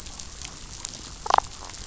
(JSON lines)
{"label": "biophony, damselfish", "recorder": "SoundTrap 500"}